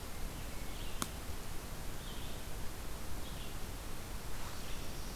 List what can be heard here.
Red-eyed Vireo, Black-throated Blue Warbler